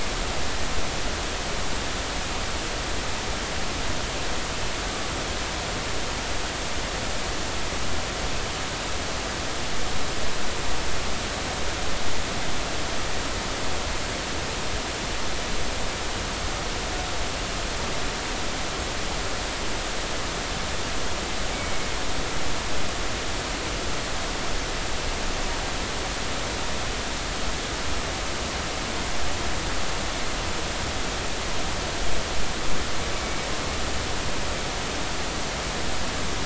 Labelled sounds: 33.2	33.5	humpback whale, 2.2 to 2.3 kHz

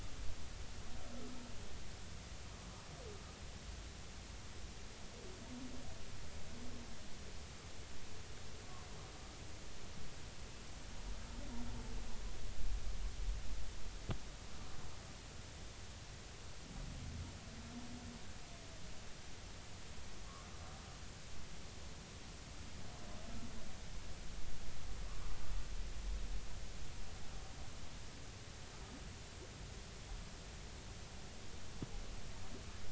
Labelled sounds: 20.2	20.5	humpback whale, 1.0 to 1.3 kHz

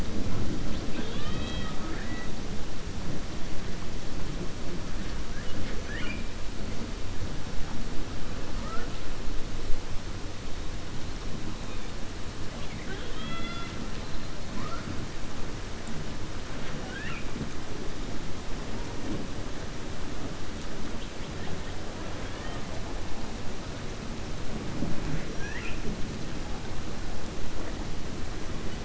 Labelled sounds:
0.6	2.3	killer whale, 0.34 to 5.2 kHz
12.5	13.8	killer whale, 0.44 to 4.8 kHz
16.5	17.3	killer whale, 0.74 to 3.6 kHz
22.2	22.6	killer whale, 0.70 to 3.6 kHz

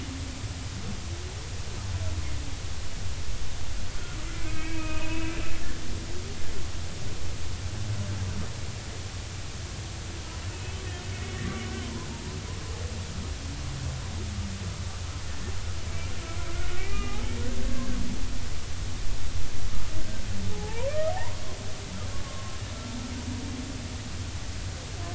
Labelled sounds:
4.3	5.3	humpback whale, 0.90 to 2.7 kHz
10.5	10.8	humpback whale, 2.5 to 2.7 kHz
11.1	12.4	humpback whale, 0.86 to 2.2 kHz
16.8	17.2	humpback whale, 1.2 to 2.5 kHz
17.7	18.0	humpback whale, 1.5 to 1.7 kHz
20.5	21.4	humpback whale, 0.80 to 1.2 kHz
22.2	22.5	humpback whale, 1.0 to 1.2 kHz

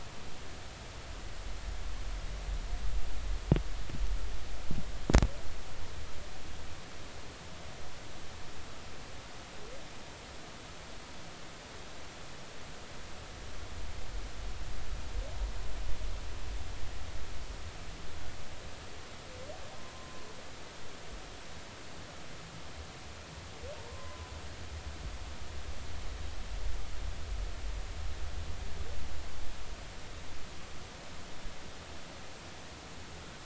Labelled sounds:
19.9	20.3	humpback whale, 0.96 to 1.1 kHz
23.9	24.4	humpback whale, 0.96 to 1.1 kHz

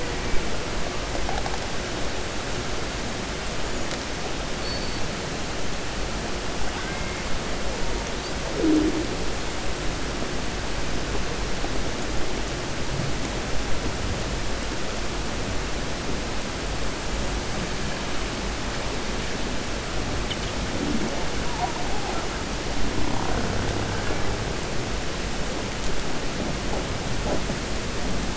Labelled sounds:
6.6	7.1	killer whale, 0.79 to 2.2 kHz

